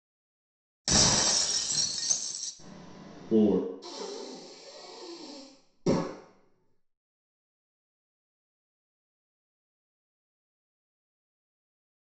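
At 0.84 seconds, glass shatters. Then, at 2.58 seconds, someone says "four". Next, at 3.81 seconds, breathing can be heard.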